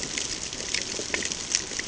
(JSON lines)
{"label": "ambient", "recorder": "HydroMoth"}